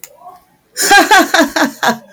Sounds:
Laughter